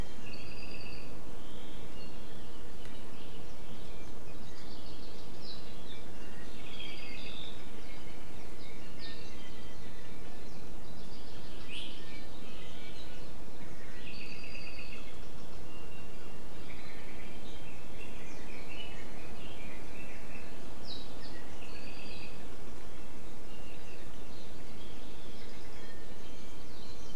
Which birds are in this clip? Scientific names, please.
Himatione sanguinea, Chlorodrepanis virens, Drepanis coccinea, Leiothrix lutea